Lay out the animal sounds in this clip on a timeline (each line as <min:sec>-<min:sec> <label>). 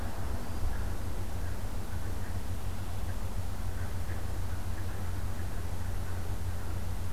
0:00.0-0:00.7 Black-throated Green Warbler (Setophaga virens)